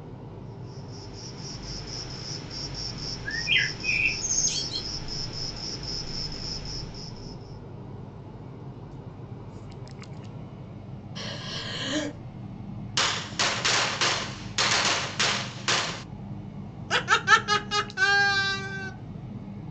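First the sound of a cricket fades in and then fades out. While that goes on, a bird can be heard. Afterwards, breathing is audible. Next, there is gunfire. Following that, someone laughs.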